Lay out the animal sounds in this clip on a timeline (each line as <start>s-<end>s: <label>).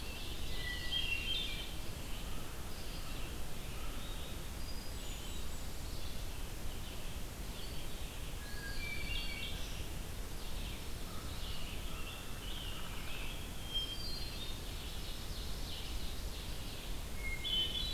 0.0s-0.9s: Eastern Wood-Pewee (Contopus virens)
0.0s-1.8s: Ovenbird (Seiurus aurocapilla)
0.0s-17.9s: Red-eyed Vireo (Vireo olivaceus)
0.5s-1.8s: Hermit Thrush (Catharus guttatus)
2.1s-4.2s: American Crow (Corvus brachyrhynchos)
4.4s-6.2s: Hermit Thrush (Catharus guttatus)
8.3s-9.1s: Eastern Wood-Pewee (Contopus virens)
8.4s-9.8s: Hermit Thrush (Catharus guttatus)
8.7s-9.9s: Black-throated Green Warbler (Setophaga virens)
11.0s-12.4s: American Crow (Corvus brachyrhynchos)
11.2s-13.5s: Scarlet Tanager (Piranga olivacea)
13.4s-14.7s: Hermit Thrush (Catharus guttatus)
14.4s-17.0s: Ovenbird (Seiurus aurocapilla)
17.1s-17.9s: Hermit Thrush (Catharus guttatus)